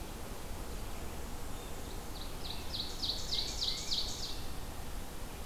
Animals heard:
Black-and-white Warbler (Mniotilta varia), Tufted Titmouse (Baeolophus bicolor), Ovenbird (Seiurus aurocapilla)

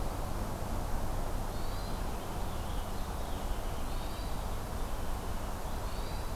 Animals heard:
Purple Finch (Haemorhous purpureus), Hermit Thrush (Catharus guttatus)

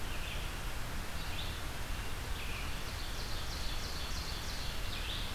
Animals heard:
Red-eyed Vireo (Vireo olivaceus), Ovenbird (Seiurus aurocapilla)

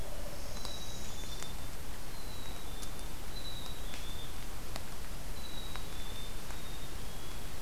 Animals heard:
Northern Parula (Setophaga americana), Black-capped Chickadee (Poecile atricapillus)

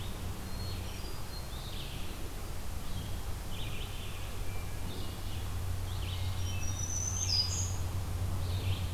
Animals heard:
Black-throated Green Warbler (Setophaga virens), Red-eyed Vireo (Vireo olivaceus), Hermit Thrush (Catharus guttatus)

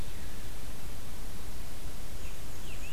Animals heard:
Black-and-white Warbler (Mniotilta varia), Scarlet Tanager (Piranga olivacea)

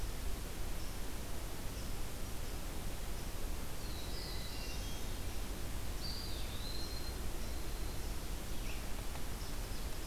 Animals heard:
Eastern Wood-Pewee (Contopus virens), Hermit Thrush (Catharus guttatus), Black-throated Green Warbler (Setophaga virens), Black-throated Blue Warbler (Setophaga caerulescens)

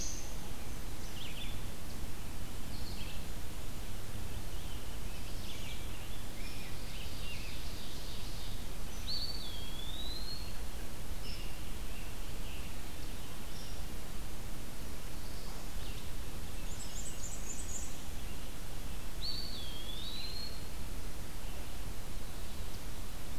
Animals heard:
Ovenbird (Seiurus aurocapilla), Red-eyed Vireo (Vireo olivaceus), Black-throated Blue Warbler (Setophaga caerulescens), Rose-breasted Grosbeak (Pheucticus ludovicianus), Black-and-white Warbler (Mniotilta varia), Eastern Wood-Pewee (Contopus virens)

